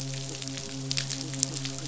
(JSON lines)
{"label": "biophony, midshipman", "recorder": "SoundTrap 500"}
{"label": "biophony", "recorder": "SoundTrap 500"}